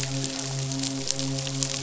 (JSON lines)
{"label": "biophony, midshipman", "recorder": "SoundTrap 500"}